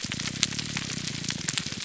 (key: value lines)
label: biophony
recorder: SoundTrap 300